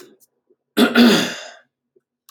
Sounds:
Throat clearing